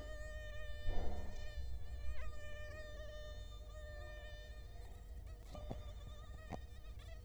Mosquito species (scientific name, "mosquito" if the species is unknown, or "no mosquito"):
Culex quinquefasciatus